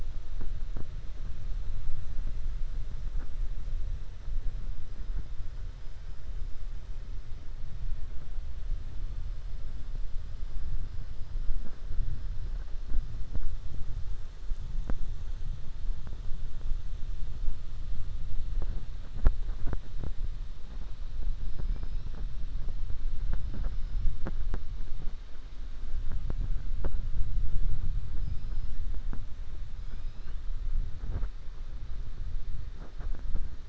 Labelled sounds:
21.5	22.1	killer whale, 5.0 to 5.8 kHz
28.1	28.8	killer whale, 4.1 to 5.6 kHz
29.7	30.4	killer whale, 1.5 to 5.3 kHz

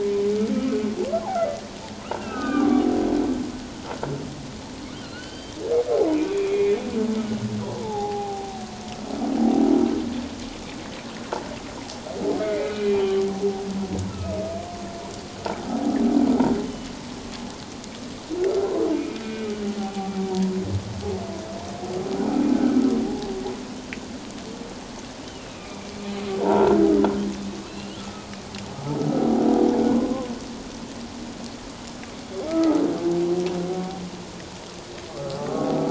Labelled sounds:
2.0	2.8	humpback whale, 1.1 to 3.0 kHz
5.0	5.6	humpback whale, 1.3 to 4.8 kHz
6.1	6.8	humpback whale, 2.0 to 3.5 kHz
7.8	8.7	humpback whale, 0.78 to 0.97 kHz
12.4	13.3	humpback whale, 1.1 to 3.2 kHz
14.1	14.4	humpback whale, 1.2 to 1.4 kHz
15.7	16.0	humpback whale, 0.78 to 0.88 kHz
16.7	16.9	humpback whale, 2.9 to 3.1 kHz
18.5	19.5	humpback whale, 1.2 to 2.5 kHz
19.8	20.1	humpback whale, 0.78 to 0.84 kHz
22.5	22.8	humpback whale, 1.2 to 1.6 kHz
25.2	26.8	humpback whale, 0.78 to 3.1 kHz
27.6	28.3	humpback whale, 1.2 to 4.3 kHz
29.0	29.4	humpback whale, 0.78 to 0.88 kHz
32.5	32.8	humpback whale, 1.2 to 1.4 kHz
35.1	35.4	humpback whale, 1.1 to 1.4 kHz

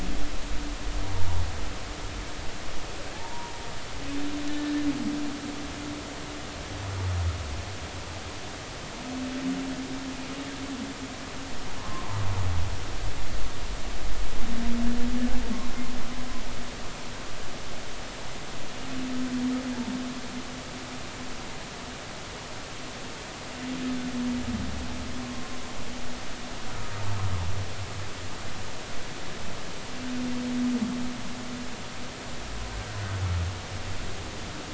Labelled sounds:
0.3	0.7	humpback whale, 0.86 to 0.99 kHz
3.1	3.5	humpback whale, 0.80 to 1.0 kHz
4.5	4.7	humpback whale, 1.7 to 1.8 kHz
11.8	12.2	humpback whale, 0.86 to 1.2 kHz
32.7	33.0	humpback whale, 1.3 to 1.6 kHz

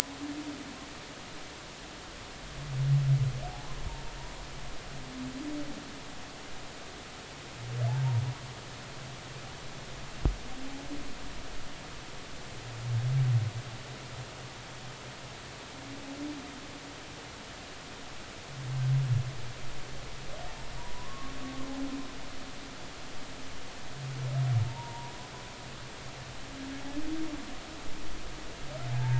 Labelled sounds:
20.8	21.3	humpback whale, 0.90 to 1.2 kHz
24.6	25.2	humpback whale, 0.86 to 1.0 kHz

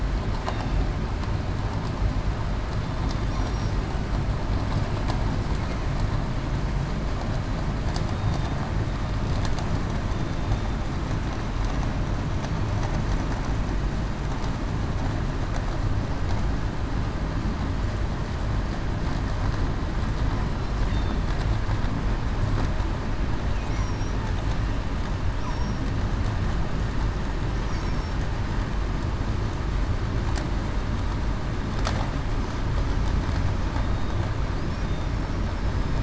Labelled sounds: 0.4	0.8	killer whale, southern resident, 2.6 to 2.8 kHz
3.3	3.7	killer whale, southern resident, 5.6 to 5.8 kHz
8.1	8.6	killer whale, southern resident, 3.5 to 3.8 kHz
23.7	24.1	killer whale, southern resident, 5.5 to 5.9 kHz
25.5	25.8	killer whale, southern resident, 5.5 to 5.7 kHz
27.7	28.1	killer whale, southern resident, 5.4 to 5.7 kHz

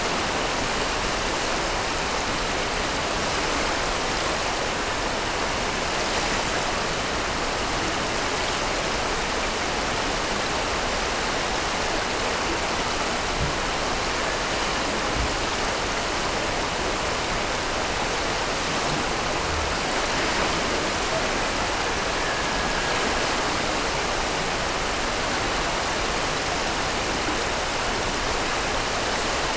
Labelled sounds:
21.0	23.3	killer whale, Bigg's (transient), Gulf of Alaska transient, 0.39 to 1.8 kHz

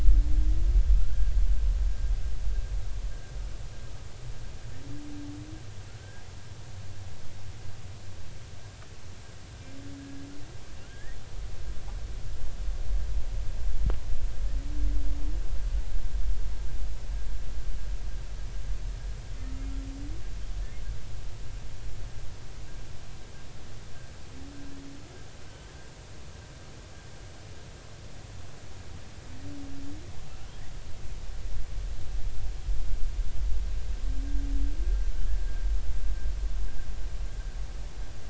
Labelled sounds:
1.0	1.3	humpback whale, 1.3 to 1.7 kHz
5.9	6.2	humpback whale, 1.3 to 1.7 kHz
10.0	10.3	humpback whale, 1.6 to 1.7 kHz
10.8	11.2	humpback whale, 1.4 to 2.0 kHz

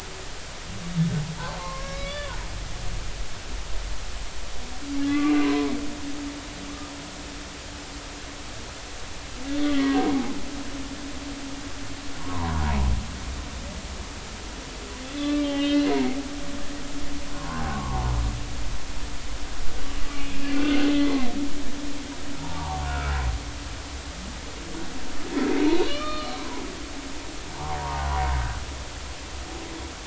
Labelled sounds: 1.6	2.4	humpback whale, 0.86 to 3.6 kHz
5.0	5.7	humpback whale, 0.96 to 2.1 kHz
9.5	10.3	humpback whale, 0.80 to 3.6 kHz
12.2	12.9	humpback whale, 0.86 to 1.2 kHz
15.0	15.9	humpback whale, 1.1 to 4.4 kHz
17.3	18.1	humpback whale, 0.80 to 1.2 kHz
20.2	21.2	humpback whale, 1.4 to 2.8 kHz
22.4	23.1	humpback whale, 0.80 to 1.5 kHz
25.7	26.4	humpback whale, 1.1 to 4.4 kHz
27.8	28.1	humpback whale, 0.80 to 1.2 kHz

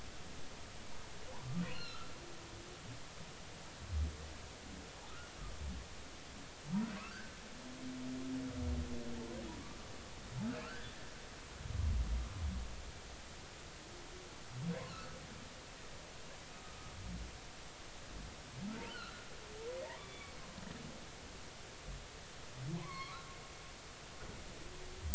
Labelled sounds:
1.6	2.1	humpback whale, 1.2 to 4.4 kHz
7.0	7.4	humpback whale, 1.2 to 1.8 kHz
10.6	10.9	humpback whale, 1.2 to 1.8 kHz
14.9	15.2	humpback whale, 1.2 to 1.6 kHz
18.9	20.3	humpback whale, 1.2 to 3.6 kHz
22.8	23.3	humpback whale, 0.96 to 4.4 kHz

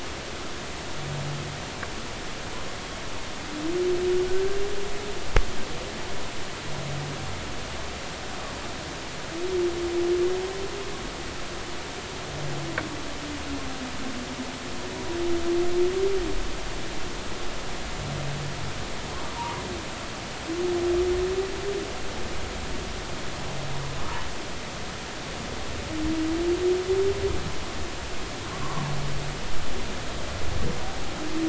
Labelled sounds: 19.3	19.6	humpback whale, 0.86 to 1.1 kHz

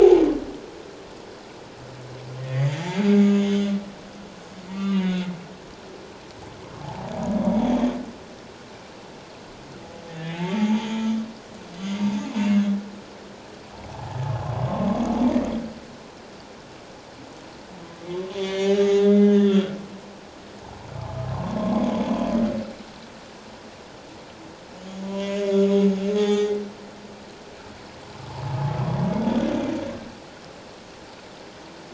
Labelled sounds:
2.4	3.5	humpback whale, 1.8 to 6.9 kHz
4.7	5.3	humpback whale, 1.1 to 3.0 kHz
6.8	7.8	humpback whale, 0.78 to 3.6 kHz
10.1	11.2	humpback whale, 0.81 to 3.5 kHz
11.8	12.7	humpback whale, 2.6 to 6.8 kHz
13.9	14.2	humpback whale, 0.78 to 0.97 kHz
18.1	19.8	humpback whale, 0.94 to 6.4 kHz
21.3	21.8	humpback whale, 0.88 to 1.2 kHz
25.0	25.6	humpback whale, 0.94 to 6.8 kHz
26.1	26.6	humpback whale, 0.78 to 5.9 kHz

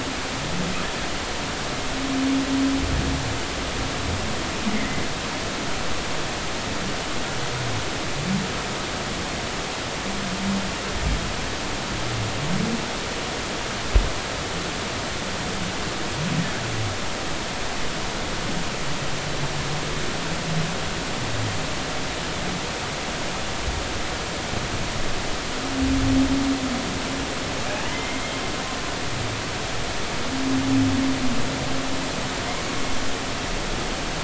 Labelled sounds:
4.7	5.0	humpback whale, 1.9 to 2.3 kHz
27.8	28.2	humpback whale, 1.9 to 3.2 kHz

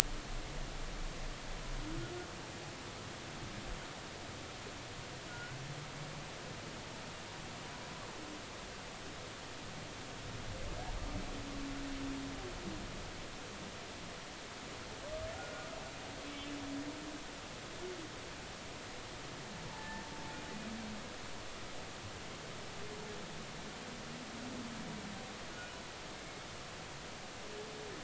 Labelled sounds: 5.3	5.6	humpback whale, 1.4 to 1.6 kHz
15.3	15.7	humpback whale, 1.3 to 1.5 kHz
19.7	20.0	humpback whale, 0.83 to 1.8 kHz

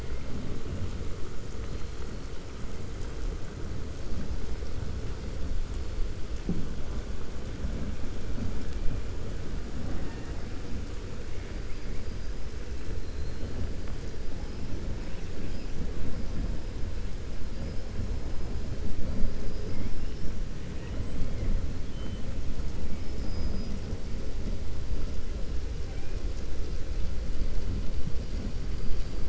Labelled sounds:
19.2	20.3	killer whale, 4.9 to 5.7 kHz
22.9	23.8	killer whale, 4.4 to 5.9 kHz

